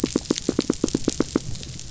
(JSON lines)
{"label": "biophony, knock", "recorder": "SoundTrap 500"}